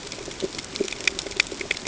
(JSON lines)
{"label": "ambient", "recorder": "HydroMoth"}